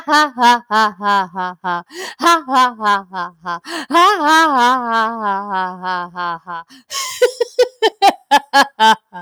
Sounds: Laughter